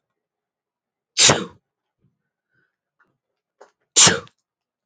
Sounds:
Sneeze